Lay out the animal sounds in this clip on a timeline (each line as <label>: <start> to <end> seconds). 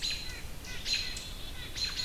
White-breasted Nuthatch (Sitta carolinensis): 0.0 to 0.6 seconds
American Robin (Turdus migratorius): 0.0 to 2.0 seconds